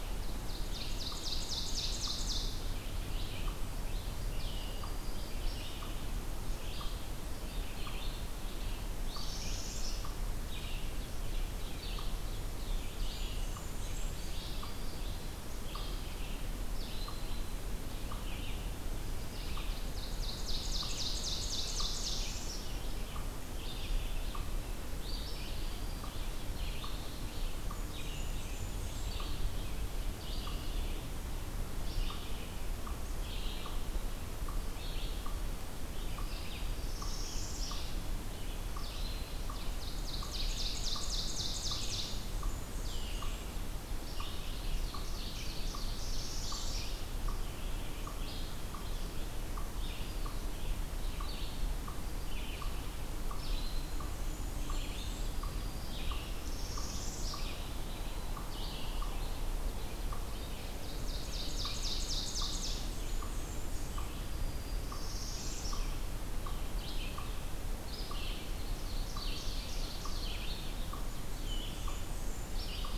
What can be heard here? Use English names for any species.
Red-eyed Vireo, unknown mammal, Ovenbird, Black-throated Green Warbler, Northern Parula, Blackburnian Warbler